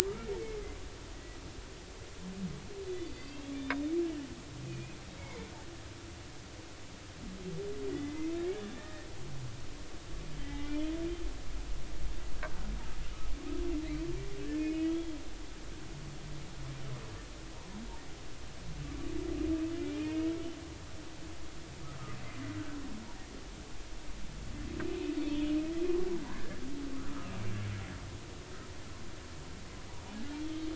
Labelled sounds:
0.1	0.3	humpback whale, 1.2 to 1.5 kHz
1.1	1.4	humpback whale, 1.9 to 2.0 kHz
2.9	3.8	humpback whale, 2.5 to 4.7 kHz
4.7	5.0	humpback whale, 2.4 to 2.6 kHz
7.9	9.1	humpback whale, 1.7 to 2.1 kHz
10.4	10.9	humpback whale, 1.9 to 3.4 kHz
14.5	15.2	humpback whale, 2.1 to 3.4 kHz
19.8	20.3	humpback whale, 2.1 to 2.6 kHz
22.2	22.6	humpback whale, 1.9 to 2.1 kHz
24.8	25.6	humpback whale, 2.3 to 3.0 kHz
26.3	26.6	humpback whale, 1.5 to 1.8 kHz

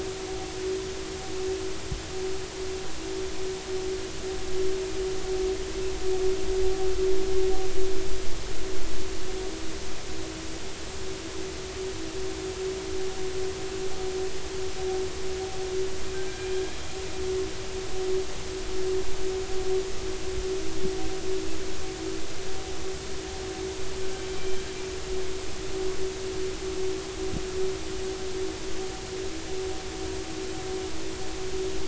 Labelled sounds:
16.1	16.7	killer whale, northern resident, 1.5 to 3.3 kHz

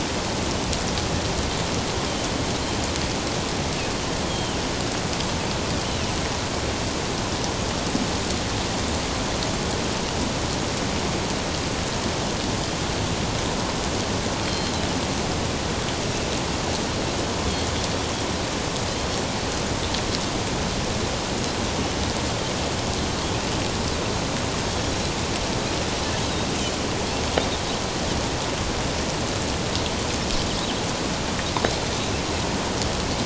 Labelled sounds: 4.3	4.6	Pacific white-sided dolphin, 2.9 to 3.3 kHz
14.4	14.7	Pacific white-sided dolphin, 3.1 to 4.3 kHz
24.7	24.9	Pacific white-sided dolphin, 3.2 to 3.4 kHz

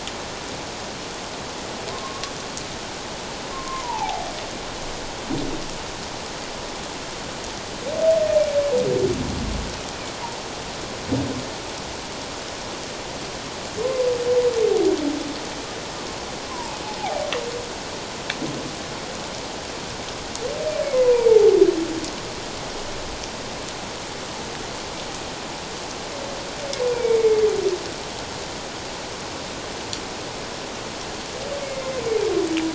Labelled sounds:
1.9	2.3	humpback whale, 0.97 to 1.2 kHz
3.5	4.3	humpback whale, 0.78 to 1.1 kHz
16.5	16.8	humpback whale, 0.81 to 1.1 kHz
21.1	21.4	humpback whale, 2.1 to 2.5 kHz
26.8	27.4	humpback whale, 0.91 to 2.4 kHz
31.6	32.0	humpback whale, 2.0 to 2.2 kHz

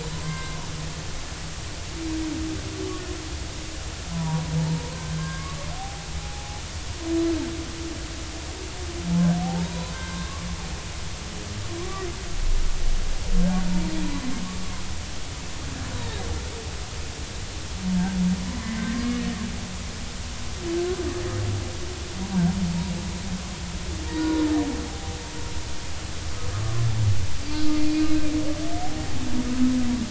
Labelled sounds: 0.0	0.6	humpback whale, 0.96 to 4.1 kHz
4.1	6.6	humpback whale, 0.80 to 1.7 kHz
9.4	10.5	humpback whale, 0.80 to 4.1 kHz
11.8	12.1	humpback whale, 0.99 to 1.2 kHz
14.0	14.3	humpback whale, 0.93 to 1.1 kHz
18.6	19.2	humpback whale, 1.0 to 2.1 kHz
23.2	24.5	humpback whale, 0.83 to 1.5 kHz
24.8	25.2	humpback whale, 0.80 to 0.86 kHz
26.5	26.8	humpback whale, 1.1 to 1.3 kHz
27.5	27.8	humpback whale, 4.4 to 4.6 kHz

